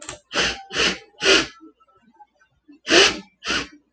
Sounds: Sniff